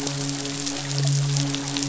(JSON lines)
{"label": "biophony, midshipman", "recorder": "SoundTrap 500"}